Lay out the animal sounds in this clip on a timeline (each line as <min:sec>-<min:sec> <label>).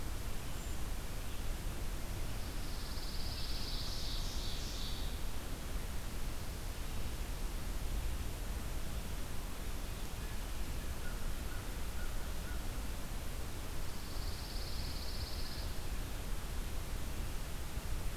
0:00.4-0:00.8 Brown Creeper (Certhia americana)
0:02.4-0:04.1 Pine Warbler (Setophaga pinus)
0:03.4-0:05.4 Ovenbird (Seiurus aurocapilla)
0:10.4-0:13.0 American Crow (Corvus brachyrhynchos)
0:13.8-0:15.7 Pine Warbler (Setophaga pinus)